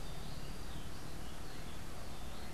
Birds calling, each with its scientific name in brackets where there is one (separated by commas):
Rufous-breasted Wren (Pheugopedius rutilus)